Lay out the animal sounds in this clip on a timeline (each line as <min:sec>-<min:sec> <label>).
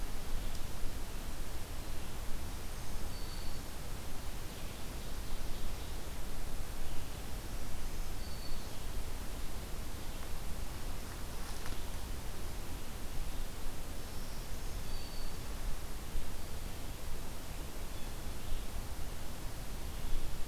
0:02.3-0:03.8 Black-throated Green Warbler (Setophaga virens)
0:04.3-0:06.2 Ovenbird (Seiurus aurocapilla)
0:07.4-0:09.0 Black-throated Green Warbler (Setophaga virens)
0:13.9-0:15.6 Black-throated Green Warbler (Setophaga virens)